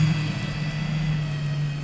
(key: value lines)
label: anthrophony, boat engine
recorder: SoundTrap 500